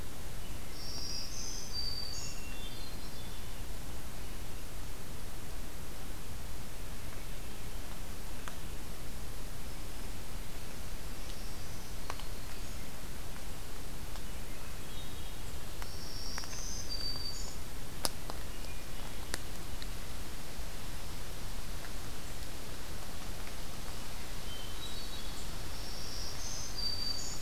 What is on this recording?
Black-throated Green Warbler, Hermit Thrush